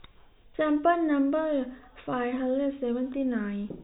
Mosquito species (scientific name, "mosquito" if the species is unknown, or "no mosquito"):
no mosquito